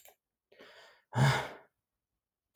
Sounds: Sigh